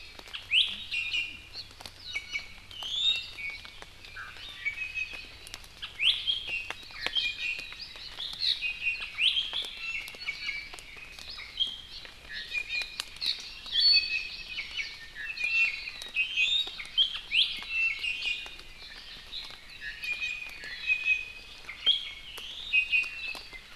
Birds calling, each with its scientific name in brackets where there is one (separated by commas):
Iiwi (Drepanis coccinea), Hawaii Amakihi (Chlorodrepanis virens)